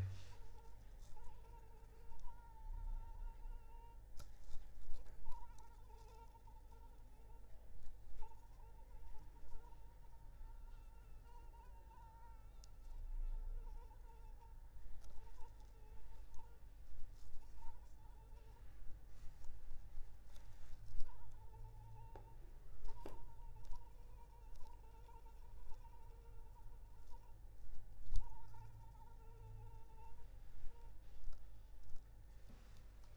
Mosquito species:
Anopheles arabiensis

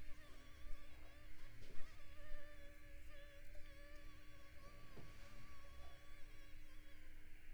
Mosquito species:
Culex pipiens complex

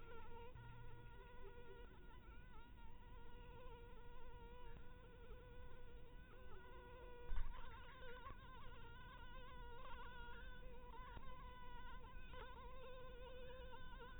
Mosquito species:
mosquito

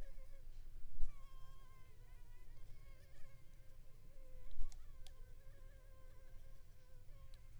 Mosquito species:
Anopheles gambiae s.l.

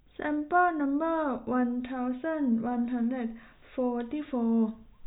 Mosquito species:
no mosquito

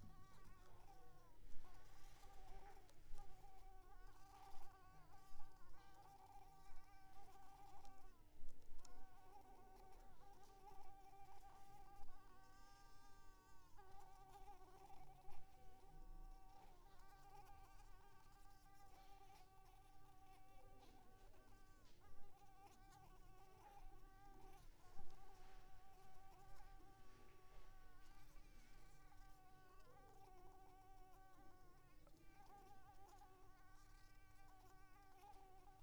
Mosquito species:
Mansonia uniformis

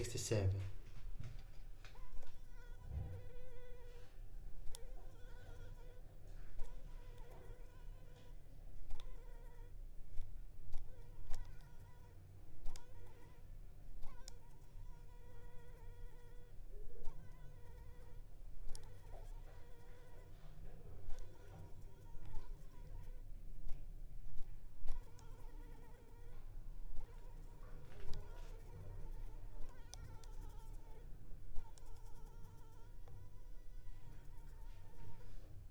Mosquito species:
Anopheles arabiensis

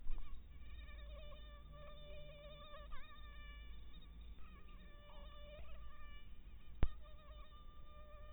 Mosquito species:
mosquito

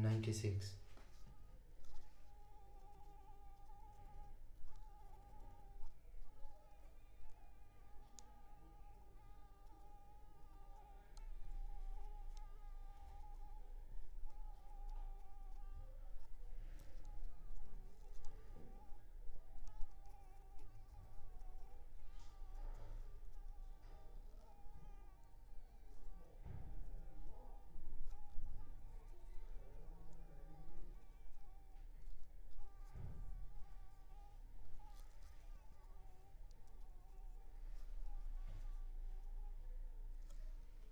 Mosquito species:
Anopheles arabiensis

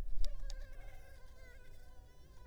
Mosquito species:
Culex pipiens complex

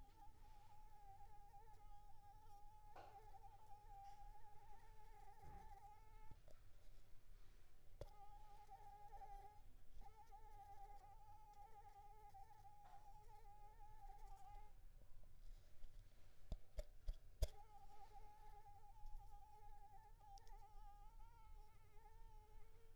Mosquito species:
Anopheles arabiensis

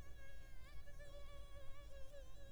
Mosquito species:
Culex pipiens complex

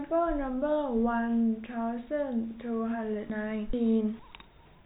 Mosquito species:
no mosquito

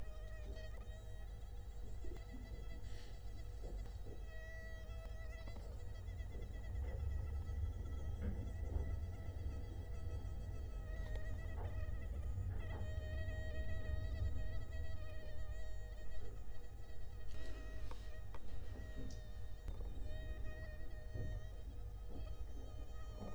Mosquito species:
Culex quinquefasciatus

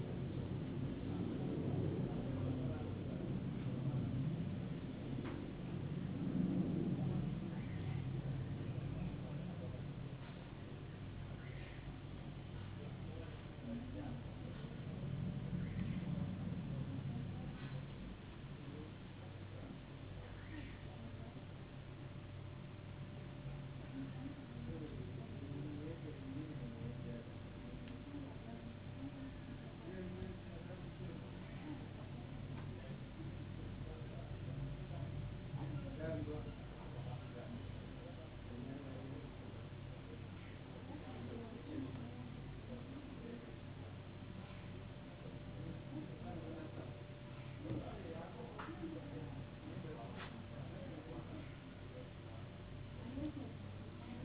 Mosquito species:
no mosquito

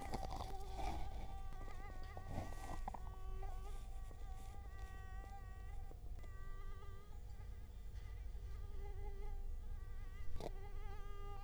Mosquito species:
Culex quinquefasciatus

